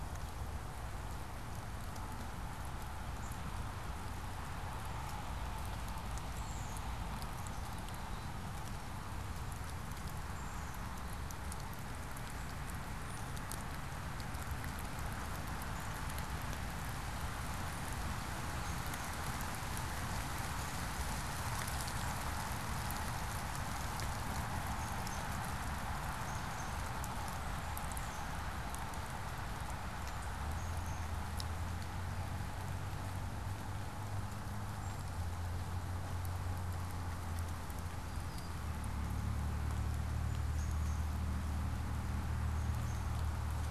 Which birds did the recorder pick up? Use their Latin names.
Poecile atricapillus